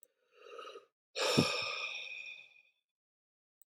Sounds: Sigh